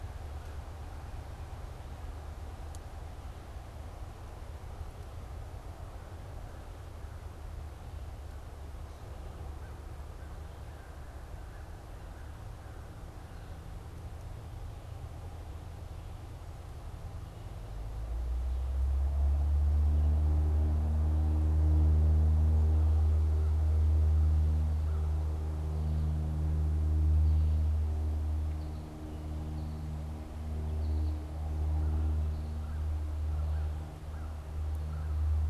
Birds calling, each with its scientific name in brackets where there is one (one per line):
American Goldfinch (Spinus tristis)
American Crow (Corvus brachyrhynchos)